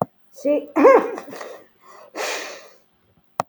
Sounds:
Sneeze